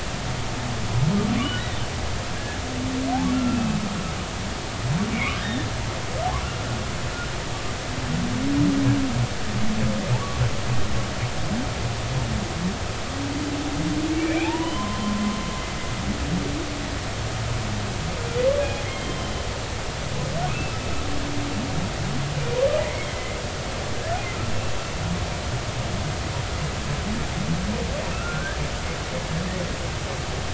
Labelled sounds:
2.3	2.6	humpback whale, 1.5 to 1.8 kHz
3.3	3.8	humpback whale, 1.3 to 2.7 kHz
5.1	5.7	humpback whale, 1.5 to 3.8 kHz
14.1	15.2	humpback whale, 0.80 to 3.1 kHz
18.8	19.4	humpback whale, 3.0 to 3.3 kHz
20.5	20.8	humpback whale, 2.4 to 2.7 kHz
22.8	23.4	humpback whale, 1.9 to 2.3 kHz
28.1	28.6	humpback whale, 1.2 to 1.8 kHz

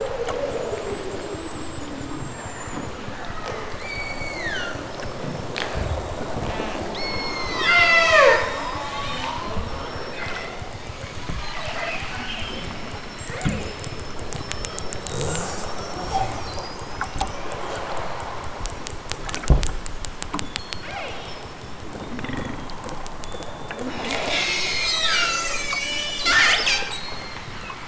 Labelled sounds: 3.8	4.8	killer whale, southern Alaska resident, 1.2 to 7.8 kHz
6.9	8.5	killer whale, southern Alaska resident, 0.05 to 8.0 kHz
9.6	10.7	killer whale, southern Alaska resident, 0.64 to 5.8 kHz
12.9	13.8	killer whale, southern Alaska resident, 0.37 to 4.3 kHz
14.5	14.9	killer whale, southern Alaska resident, 0.83 to 5.0 kHz
20.6	21.3	killer whale, southern Alaska resident, 0.28 to 6.0 kHz
24.3	25.6	killer whale, southern Alaska resident, 1.1 to 8.0 kHz
27.0	27.8	killer whale, southern Alaska resident, 0.60 to 4.8 kHz

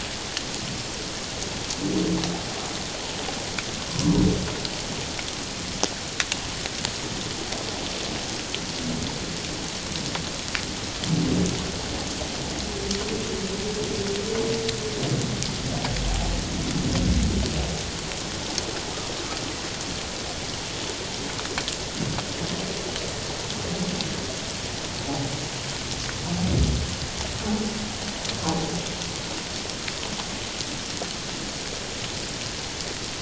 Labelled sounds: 25.0	25.3	humpback whale, 0.78 to 0.94 kHz

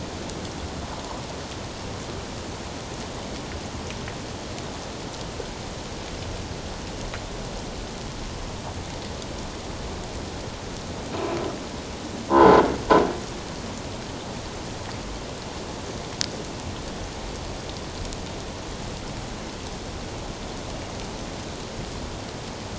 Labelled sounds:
12.3	12.6	croaking sound likely from a nearby submerged object, 0.81 to 1.1 kHz

